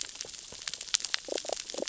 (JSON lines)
{"label": "biophony, damselfish", "recorder": "SoundTrap 600 or HydroMoth"}